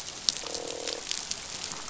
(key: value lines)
label: biophony, croak
recorder: SoundTrap 500